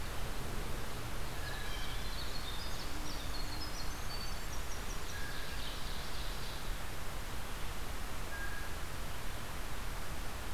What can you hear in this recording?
Winter Wren, Blue Jay, Ovenbird